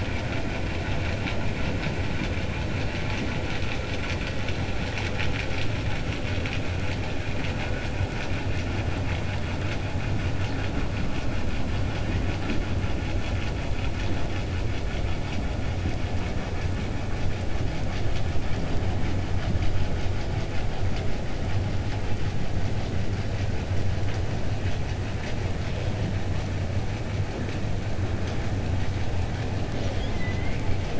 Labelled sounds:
29.7	30.7	killer whale, 1.5 to 6.8 kHz

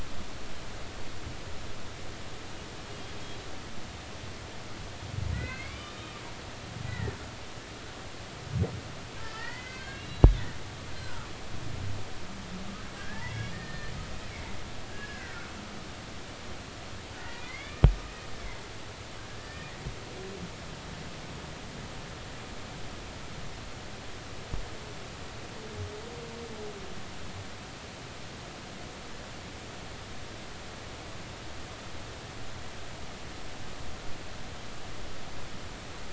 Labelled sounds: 5.3	6.2	humpback whale, 1.1 to 4.6 kHz
6.9	7.2	humpback whale, 1.7 to 2.0 kHz
9.2	10.4	humpback whale, 0.83 to 4.4 kHz
11.0	11.3	humpback whale, 1.1 to 1.6 kHz
13.0	13.9	humpback whale, 1.5 to 3.5 kHz
14.3	15.5	humpback whale, 1.3 to 2.4 kHz
17.2	17.8	humpback whale, 1.8 to 2.5 kHz
19.4	19.7	humpback whale, 1.7 to 1.9 kHz

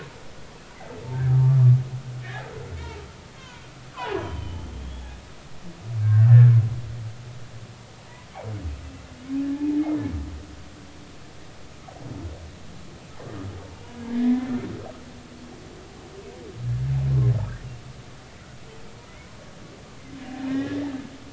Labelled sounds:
1.3	1.6	humpback whale, 1.1 to 1.2 kHz
3.4	3.6	humpback whale, 1.4 to 2.7 kHz
3.9	5.1	humpback whale, 0.80 to 3.4 kHz
6.0	6.3	humpback whale, 1.4 to 1.7 kHz
9.5	9.8	humpback whale, 0.83 to 0.93 kHz
14.0	14.6	humpback whale, 1.6 to 2.2 kHz
20.5	20.8	humpback whale, 1.5 to 2.0 kHz

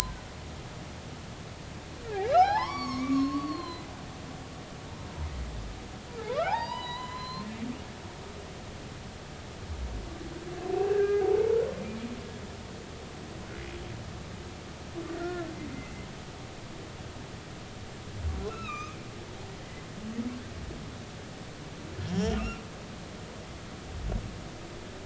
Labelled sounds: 2.3	3.9	humpback whale, 0.80 to 6.9 kHz
6.2	7.5	humpback whale, 0.80 to 5.0 kHz
10.9	11.4	humpback whale, 0.80 to 1.8 kHz
15.1	15.5	humpback whale, 1.3 to 2.0 kHz
15.7	16.1	humpback whale, 2.0 to 2.1 kHz
18.5	19.0	humpback whale, 1.1 to 6.5 kHz
22.1	22.6	humpback whale, 2.5 to 3.4 kHz

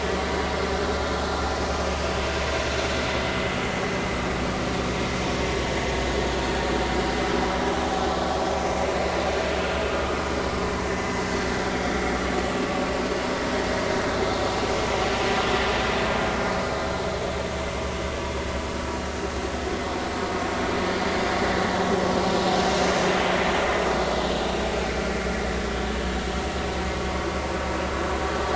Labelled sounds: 5.7	6.0	vessel noise, 1.8 to 1.9 kHz
10.1	11.2	vessel noise, 2.0 to 5.2 kHz

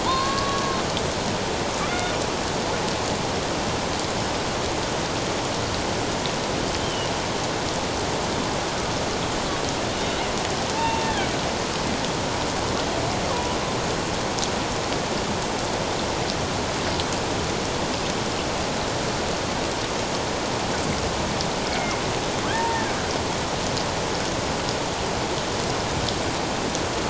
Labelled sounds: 0.0	0.6	killer whale, Bigg's (transient), 0.88 to 4.4 kHz
1.9	2.2	killer whale, Bigg's (transient), 1.4 to 2.2 kHz
6.8	7.1	killer whale, Bigg's (transient), 2.8 to 3.2 kHz
10.7	11.3	killer whale, Bigg's (transient), 0.84 to 2.8 kHz
13.3	13.6	killer whale, Bigg's (transient), 0.94 to 1.2 kHz
21.7	22.8	killer whale, Bigg's (transient), 0.84 to 2.3 kHz

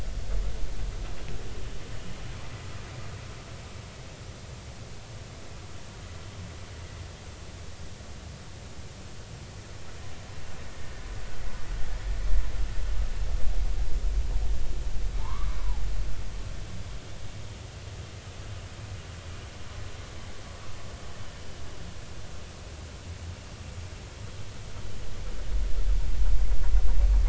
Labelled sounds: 15.2	15.8	humpback whale, 0.80 to 1.3 kHz

